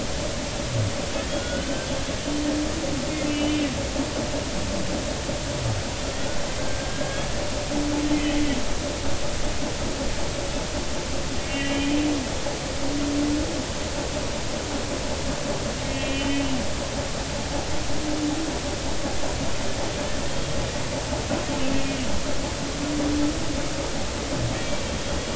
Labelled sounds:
1.3	1.9	humpback whale, 1.4 to 3.1 kHz
3.3	3.6	humpback whale, 2.8 to 3.0 kHz
6.8	7.3	humpback whale, 1.6 to 1.7 kHz
11.5	12.0	humpback whale, 2.4 to 3.1 kHz
15.9	16.6	humpback whale, 2.4 to 3.3 kHz
20.3	20.6	humpback whale, 3.1 to 3.3 kHz
24.5	24.8	humpback whale, 2.3 to 2.4 kHz

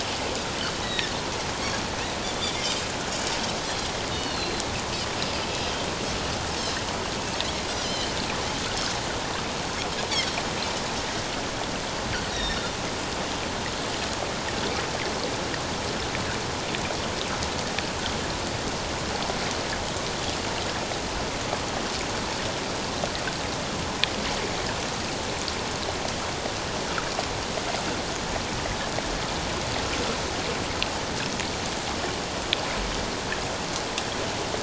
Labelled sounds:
0.8	1.1	Pacific white-sided dolphin, 1.7 to 4.0 kHz
2.2	2.6	Pacific white-sided dolphin, 3.3 to 3.7 kHz
4.1	4.6	Pacific white-sided dolphin, 2.8 to 4.5 kHz
5.5	5.9	Pacific white-sided dolphin, 3.1 to 3.3 kHz
7.8	8.1	Pacific white-sided dolphin, 2.9 to 3.2 kHz
12.3	12.6	Pacific white-sided dolphin, 3.5 to 5.8 kHz

